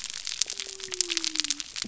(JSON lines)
{"label": "biophony", "recorder": "SoundTrap 300"}